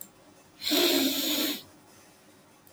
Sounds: Sniff